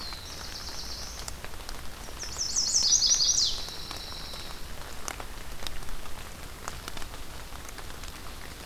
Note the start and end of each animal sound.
[0.00, 1.38] Black-throated Blue Warbler (Setophaga caerulescens)
[1.93, 3.55] Chestnut-sided Warbler (Setophaga pensylvanica)
[3.42, 4.68] Pine Warbler (Setophaga pinus)

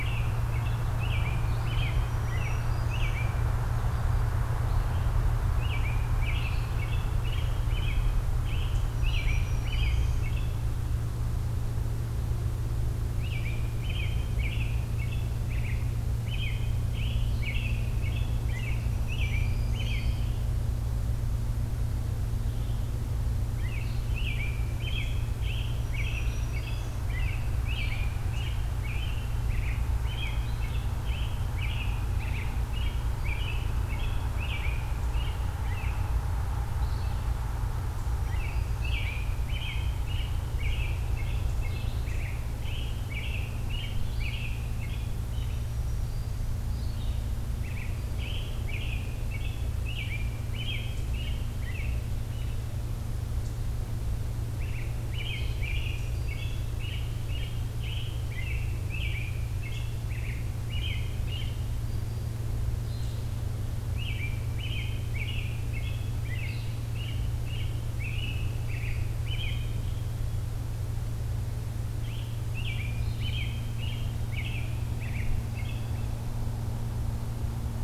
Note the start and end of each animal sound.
[0.00, 3.46] American Robin (Turdus migratorius)
[1.94, 3.21] Black-throated Green Warbler (Setophaga virens)
[5.57, 10.61] American Robin (Turdus migratorius)
[8.88, 10.29] Black-throated Green Warbler (Setophaga virens)
[13.09, 20.43] American Robin (Turdus migratorius)
[17.15, 73.54] Red-eyed Vireo (Vireo olivaceus)
[18.83, 19.90] Black-throated Green Warbler (Setophaga virens)
[23.55, 36.21] American Robin (Turdus migratorius)
[25.83, 27.01] Black-throated Green Warbler (Setophaga virens)
[37.95, 38.89] Black-throated Green Warbler (Setophaga virens)
[38.18, 45.72] American Robin (Turdus migratorius)
[45.30, 46.47] Black-throated Green Warbler (Setophaga virens)
[47.55, 52.03] American Robin (Turdus migratorius)
[54.51, 61.68] American Robin (Turdus migratorius)
[55.61, 56.57] Black-throated Green Warbler (Setophaga virens)
[63.90, 69.90] American Robin (Turdus migratorius)
[71.85, 76.15] American Robin (Turdus migratorius)

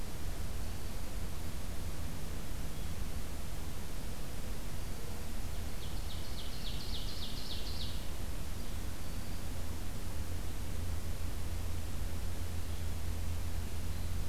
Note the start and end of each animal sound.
[0.46, 1.16] Black-throated Green Warbler (Setophaga virens)
[4.66, 5.30] Black-throated Green Warbler (Setophaga virens)
[5.74, 8.07] Ovenbird (Seiurus aurocapilla)
[8.83, 9.60] Black-throated Green Warbler (Setophaga virens)

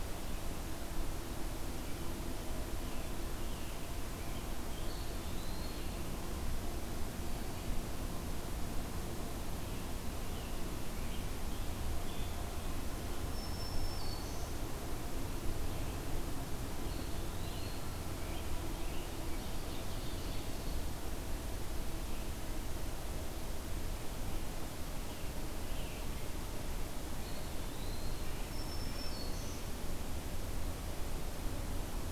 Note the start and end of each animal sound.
[2.57, 5.03] American Robin (Turdus migratorius)
[4.80, 6.17] Eastern Wood-Pewee (Contopus virens)
[9.53, 12.74] American Robin (Turdus migratorius)
[13.13, 14.77] Black-throated Green Warbler (Setophaga virens)
[16.71, 17.96] Eastern Wood-Pewee (Contopus virens)
[17.40, 19.67] American Robin (Turdus migratorius)
[19.15, 20.94] Ovenbird (Seiurus aurocapilla)
[24.87, 26.32] American Robin (Turdus migratorius)
[27.11, 28.41] Eastern Wood-Pewee (Contopus virens)
[28.18, 29.22] Red-breasted Nuthatch (Sitta canadensis)
[28.24, 29.81] Black-throated Green Warbler (Setophaga virens)

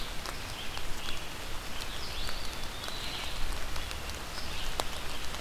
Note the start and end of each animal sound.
[0.00, 5.41] Red-eyed Vireo (Vireo olivaceus)
[2.02, 3.25] Eastern Wood-Pewee (Contopus virens)

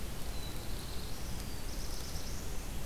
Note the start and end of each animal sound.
[0.00, 2.85] Black-throated Blue Warbler (Setophaga caerulescens)

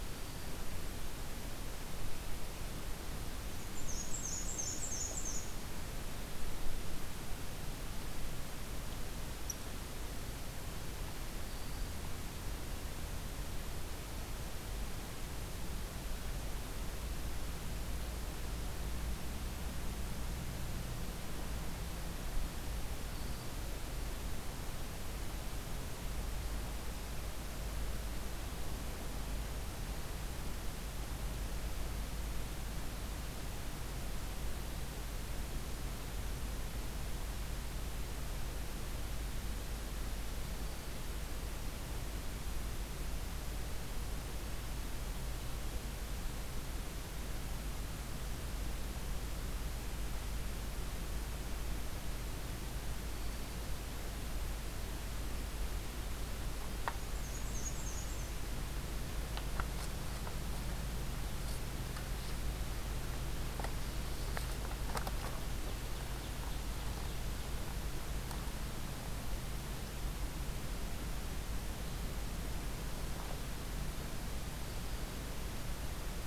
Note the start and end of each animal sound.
[0.00, 0.55] Black-throated Green Warbler (Setophaga virens)
[3.63, 5.54] Black-and-white Warbler (Mniotilta varia)
[11.34, 11.95] Black-throated Green Warbler (Setophaga virens)
[23.07, 23.58] Black-throated Green Warbler (Setophaga virens)
[40.38, 41.03] Black-throated Green Warbler (Setophaga virens)
[53.04, 53.66] Black-throated Green Warbler (Setophaga virens)
[56.81, 58.36] Black-and-white Warbler (Mniotilta varia)
[65.19, 67.51] Ovenbird (Seiurus aurocapilla)

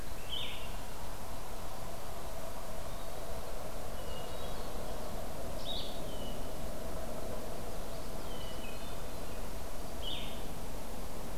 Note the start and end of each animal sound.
[0.25, 0.66] Blue-headed Vireo (Vireo solitarius)
[3.84, 4.92] Hermit Thrush (Catharus guttatus)
[5.54, 5.95] Blue-headed Vireo (Vireo solitarius)
[5.97, 6.49] Hermit Thrush (Catharus guttatus)
[7.62, 8.56] Common Yellowthroat (Geothlypis trichas)
[8.24, 9.48] Hermit Thrush (Catharus guttatus)
[10.00, 10.37] Blue-headed Vireo (Vireo solitarius)

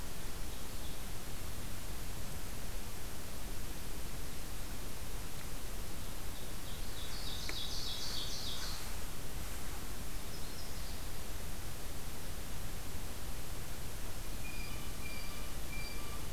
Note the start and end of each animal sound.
[6.43, 9.00] Ovenbird (Seiurus aurocapilla)
[9.97, 11.38] Yellow-rumped Warbler (Setophaga coronata)
[14.21, 16.32] Blue Jay (Cyanocitta cristata)

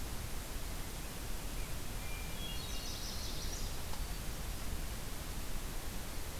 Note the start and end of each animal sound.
[1.86, 3.21] Hermit Thrush (Catharus guttatus)
[2.60, 3.74] Chestnut-sided Warbler (Setophaga pensylvanica)

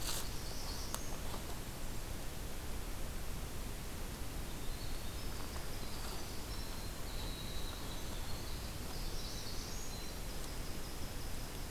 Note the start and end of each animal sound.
[0.00, 1.47] Northern Parula (Setophaga americana)
[4.33, 11.70] Winter Wren (Troglodytes hiemalis)
[8.81, 10.01] Northern Parula (Setophaga americana)

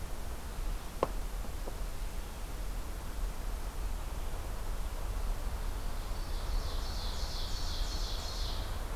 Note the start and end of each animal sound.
[5.56, 8.96] Ovenbird (Seiurus aurocapilla)

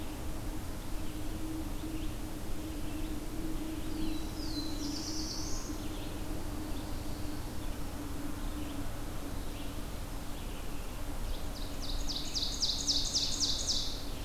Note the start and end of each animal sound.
[0.00, 14.24] Red-eyed Vireo (Vireo olivaceus)
[3.91, 5.79] Black-throated Blue Warbler (Setophaga caerulescens)
[11.00, 14.00] Ovenbird (Seiurus aurocapilla)

